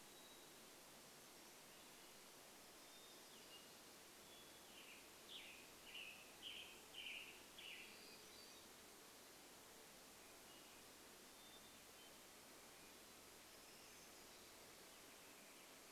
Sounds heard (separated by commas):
Hermit Thrush song, Western Tanager song, Black-throated Gray Warbler song, Northern Flicker call